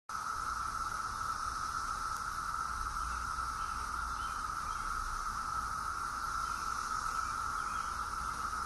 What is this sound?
Magicicada septendecim, a cicada